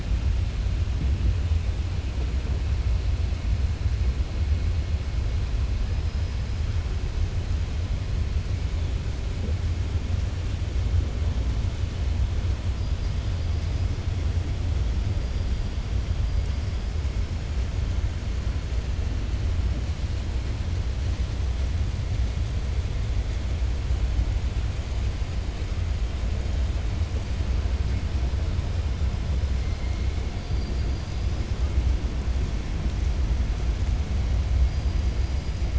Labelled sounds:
30.4	31.3	killer whale, 4.1 to 5.8 kHz
35.1	35.6	killer whale, 4.0 to 5.0 kHz

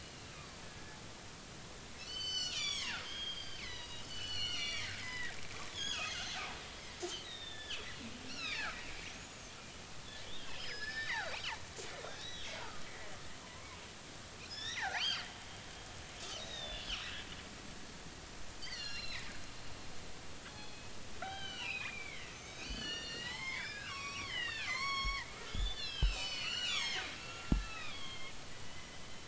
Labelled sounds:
0.0	0.5	killer whale, northern resident, G clan, 1.1 to 4.4 kHz
2.0	5.4	killer whale, northern resident, G clan, 0.80 to 8.0 kHz
5.7	6.4	killer whale, northern resident, G clan, 1.2 to 6.8 kHz
7.2	8.8	killer whale, northern resident, G clan, 1.2 to 5.9 kHz
9.1	9.4	killer whale, northern resident, G clan, 6.2 to 6.9 kHz
10.2	11.4	killer whale, northern resident, G clan, 1.3 to 5.2 kHz
12.0	12.9	killer whale, northern resident, G clan, 1.2 to 4.0 kHz
13.4	13.8	killer whale, northern resident, G clan, 0.93 to 1.2 kHz
14.5	15.3	killer whale, northern resident, G clan, 0.80 to 6.3 kHz
16.4	17.0	killer whale, northern resident, G clan, 2.5 to 4.0 kHz
18.6	19.3	killer whale, northern resident, G clan, 1.6 to 5.9 kHz
20.5	20.9	killer whale, northern resident, G clan, 2.5 to 4.3 kHz
21.2	28.3	killer whale, northern resident, G clan, 0.80 to 7.4 kHz
28.6	29.0	killer whale, northern resident, G clan, 2.0 to 3.1 kHz

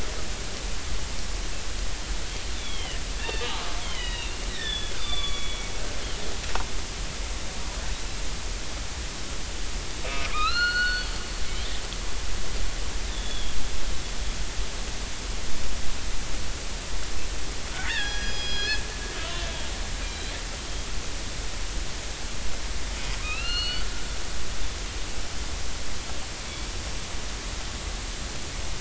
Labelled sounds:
2.5	5.7	killer whale, northern resident, 1.0 to 5.0 kHz
10.0	11.2	killer whale, northern resident, 1.1 to 4.5 kHz
13.1	13.5	killer whale, northern resident, 3.1 to 3.9 kHz
17.8	19.5	killer whale, northern resident, 0.80 to 5.9 kHz
20.1	20.4	killer whale, northern resident, 3.1 to 4.1 kHz
23.2	23.9	killer whale, northern resident, 1.2 to 4.6 kHz

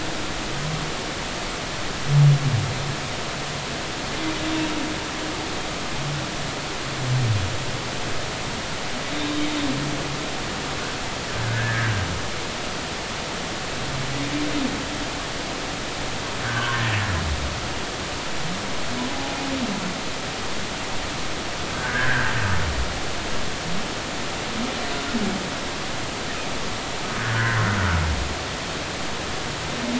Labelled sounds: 11.4	11.9	humpback whale, 1.4 to 1.9 kHz
16.4	16.8	humpback whale, 0.93 to 1.8 kHz
21.7	22.3	humpback whale, 1.4 to 2.0 kHz
28.2	28.6	humpback whale, 1.4 to 2.0 kHz

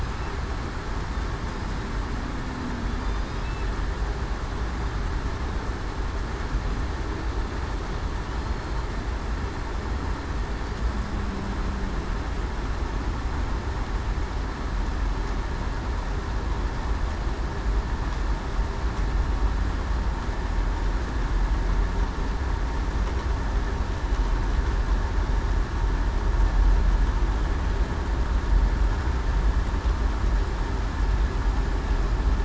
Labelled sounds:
8.4	8.8	killer whale, southern resident, 4.2 to 4.3 kHz

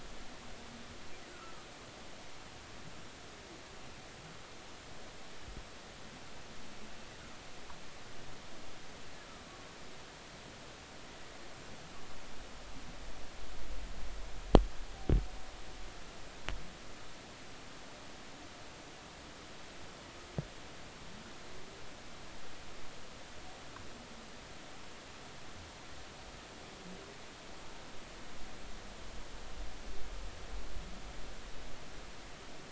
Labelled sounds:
1.3	1.7	humpback whale, 1.2 to 1.5 kHz

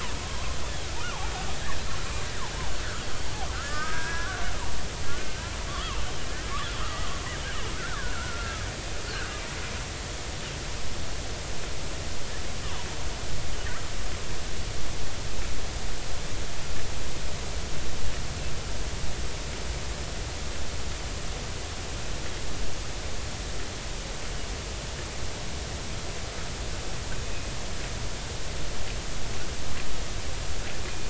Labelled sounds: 0.2	0.6	killer whale, Bigg's (transient), 0.93 to 1.2 kHz
1.6	1.8	killer whale, Bigg's (transient), 1.5 to 1.9 kHz
3.5	4.4	killer whale, Bigg's (transient), 1.2 to 1.9 kHz
6.7	8.7	killer whale, Bigg's (transient), 0.86 to 3.6 kHz
30.8	31.0	killer whale, Bigg's (transient), 2.4 to 2.5 kHz

